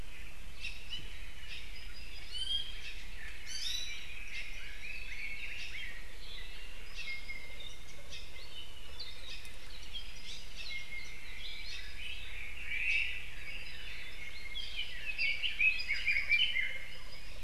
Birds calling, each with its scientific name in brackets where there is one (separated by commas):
Apapane (Himatione sanguinea), Iiwi (Drepanis coccinea), Omao (Myadestes obscurus), Red-billed Leiothrix (Leiothrix lutea)